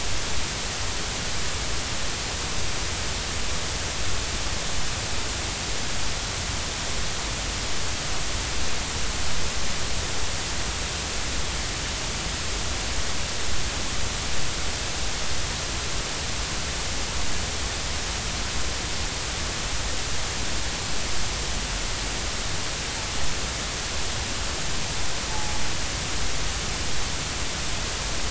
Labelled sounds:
25.3	25.6	humpback whale, 0.80 to 0.90 kHz

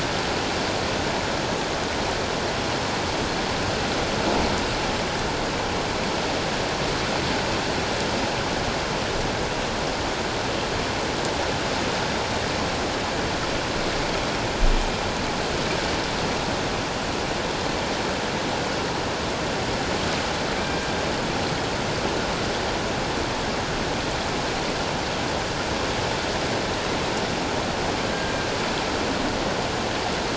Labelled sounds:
20.6	20.9	killer whale, northern resident, G clan, 1.5 to 1.6 kHz

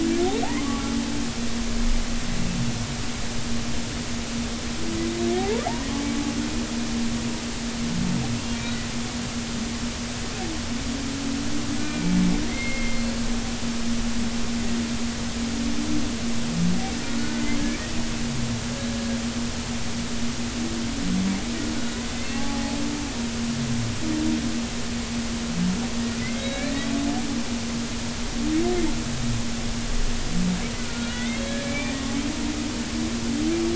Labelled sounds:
5.4	5.6	humpback whale, 0.80 to 0.99 kHz
11.8	13.2	humpback whale, 1.8 to 4.4 kHz
17.2	17.5	humpback whale, 1.4 to 1.5 kHz
22.3	22.8	humpback whale, 0.80 to 1.2 kHz
26.2	26.7	humpback whale, 1.9 to 3.9 kHz
30.8	31.9	humpback whale, 1.4 to 4.0 kHz

